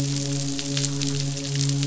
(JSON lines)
{"label": "biophony, midshipman", "recorder": "SoundTrap 500"}